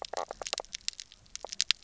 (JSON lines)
{"label": "biophony, knock croak", "recorder": "SoundTrap 300"}